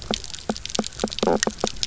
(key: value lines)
label: biophony, knock croak
recorder: SoundTrap 300